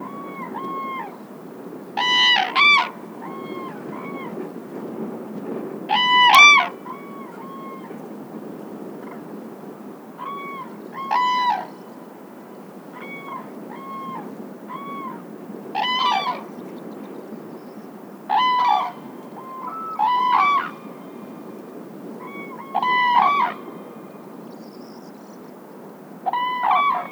Is there a person screaming?
no